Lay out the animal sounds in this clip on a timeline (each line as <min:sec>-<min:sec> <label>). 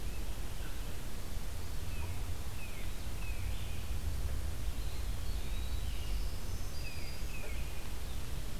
0:01.8-0:03.7 Tufted Titmouse (Baeolophus bicolor)
0:04.6-0:06.2 Eastern Wood-Pewee (Contopus virens)
0:05.9-0:07.5 Black-throated Green Warbler (Setophaga virens)
0:06.6-0:08.0 Tufted Titmouse (Baeolophus bicolor)